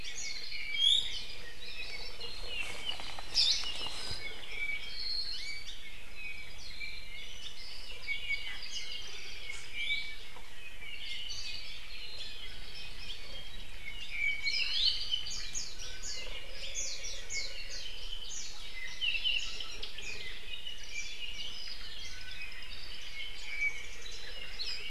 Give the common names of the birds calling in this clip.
Warbling White-eye, Iiwi, Apapane, Hawaii Akepa